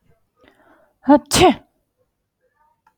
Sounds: Sneeze